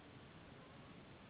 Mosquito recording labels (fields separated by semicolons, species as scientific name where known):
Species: Anopheles gambiae s.s.; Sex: female; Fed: unfed; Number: one; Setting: insect culture